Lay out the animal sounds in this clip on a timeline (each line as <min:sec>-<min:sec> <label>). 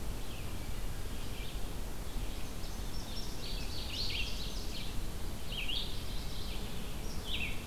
0:00.0-0:07.7 Red-eyed Vireo (Vireo olivaceus)
0:02.3-0:04.8 Indigo Bunting (Passerina cyanea)
0:05.5-0:06.7 Mourning Warbler (Geothlypis philadelphia)